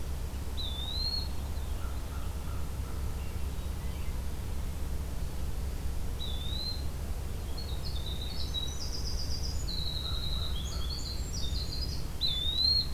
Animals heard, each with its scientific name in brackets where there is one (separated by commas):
American Crow (Corvus brachyrhynchos), Eastern Wood-Pewee (Contopus virens), Winter Wren (Troglodytes hiemalis), American Robin (Turdus migratorius), Veery (Catharus fuscescens)